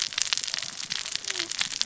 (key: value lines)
label: biophony, cascading saw
recorder: SoundTrap 600 or HydroMoth